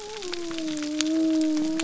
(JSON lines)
{"label": "biophony", "recorder": "SoundTrap 300"}